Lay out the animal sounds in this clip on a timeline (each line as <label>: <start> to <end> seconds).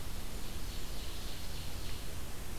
Ovenbird (Seiurus aurocapilla): 0.4 to 2.1 seconds